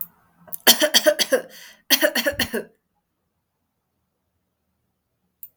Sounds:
Cough